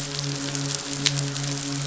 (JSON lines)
{"label": "biophony, midshipman", "recorder": "SoundTrap 500"}